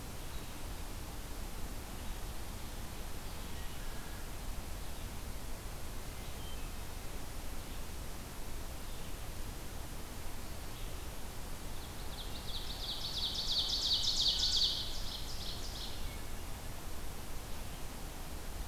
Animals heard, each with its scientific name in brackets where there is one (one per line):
Red-eyed Vireo (Vireo olivaceus)
Ovenbird (Seiurus aurocapilla)